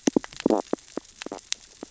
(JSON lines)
{"label": "biophony, stridulation", "recorder": "SoundTrap 600 or HydroMoth"}